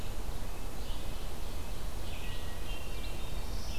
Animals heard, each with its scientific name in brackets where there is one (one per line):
Red-eyed Vireo (Vireo olivaceus)
Red-breasted Nuthatch (Sitta canadensis)
Hermit Thrush (Catharus guttatus)